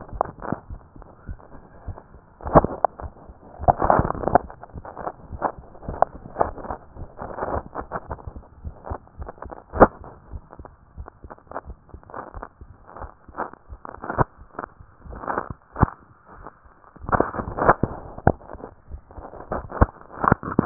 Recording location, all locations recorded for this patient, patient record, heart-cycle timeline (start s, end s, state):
tricuspid valve (TV)
aortic valve (AV)+pulmonary valve (PV)+tricuspid valve (TV)+mitral valve (MV)
#Age: Adolescent
#Sex: Female
#Height: 58.0 cm
#Weight: 51.6 kg
#Pregnancy status: False
#Murmur: Unknown
#Murmur locations: nan
#Most audible location: nan
#Systolic murmur timing: nan
#Systolic murmur shape: nan
#Systolic murmur grading: nan
#Systolic murmur pitch: nan
#Systolic murmur quality: nan
#Diastolic murmur timing: nan
#Diastolic murmur shape: nan
#Diastolic murmur grading: nan
#Diastolic murmur pitch: nan
#Diastolic murmur quality: nan
#Outcome: Abnormal
#Campaign: 2015 screening campaign
0.00	0.68	unannotated
0.68	0.80	S1
0.80	0.96	systole
0.96	1.06	S2
1.06	1.26	diastole
1.26	1.38	S1
1.38	1.54	systole
1.54	1.62	S2
1.62	1.86	diastole
1.86	1.98	S1
1.98	2.14	systole
2.14	2.22	S2
2.22	2.43	diastole
2.43	2.52	S1
2.52	3.00	unannotated
3.00	3.12	S1
3.12	3.28	systole
3.28	3.36	S2
3.36	3.58	diastole
3.58	3.70	S1
3.70	5.28	unannotated
5.28	5.42	S1
5.42	5.56	systole
5.56	5.66	S2
5.66	5.86	diastole
5.86	5.97	S1
5.97	6.12	systole
6.12	6.22	S2
6.22	6.38	diastole
6.38	6.56	S1
6.56	6.68	systole
6.68	6.78	S2
6.78	6.98	diastole
6.98	7.10	S1
7.10	7.21	systole
7.21	7.30	S2
7.30	7.46	diastole
7.46	8.08	unannotated
8.08	8.20	S1
8.20	8.34	systole
8.34	8.44	S2
8.44	8.62	diastole
8.62	8.76	S1
8.76	8.88	systole
8.88	9.00	S2
9.00	9.18	diastole
9.18	9.30	S1
9.30	9.46	systole
9.46	9.56	S2
9.56	9.74	diastole
9.74	9.87	S1
9.87	10.02	systole
10.02	10.12	S2
10.12	10.30	diastole
10.30	10.42	S1
10.42	10.60	systole
10.60	10.70	S2
10.70	10.96	diastole
10.96	11.08	S1
11.08	11.24	systole
11.24	11.32	S2
11.32	11.67	diastole
11.67	11.75	S1
11.75	20.66	unannotated